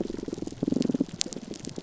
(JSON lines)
{"label": "biophony, pulse", "recorder": "SoundTrap 300"}